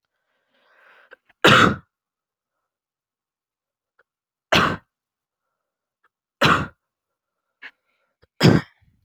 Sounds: Cough